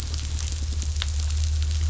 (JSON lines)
{"label": "anthrophony, boat engine", "recorder": "SoundTrap 500"}